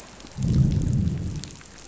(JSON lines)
{"label": "biophony, growl", "recorder": "SoundTrap 500"}